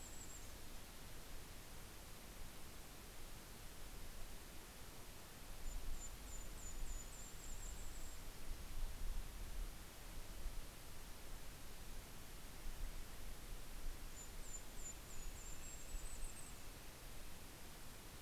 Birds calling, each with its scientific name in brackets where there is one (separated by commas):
Red-breasted Nuthatch (Sitta canadensis), Yellow-rumped Warbler (Setophaga coronata)